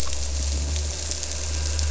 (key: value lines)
label: anthrophony, boat engine
recorder: SoundTrap 300